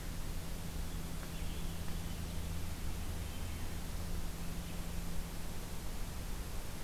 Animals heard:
forest ambience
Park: Marsh-Billings-Rockefeller National Historical Park